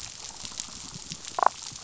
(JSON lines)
{"label": "biophony, damselfish", "recorder": "SoundTrap 500"}